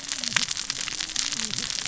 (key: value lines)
label: biophony, cascading saw
recorder: SoundTrap 600 or HydroMoth